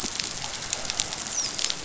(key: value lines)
label: biophony, dolphin
recorder: SoundTrap 500